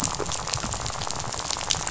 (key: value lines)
label: biophony, rattle
recorder: SoundTrap 500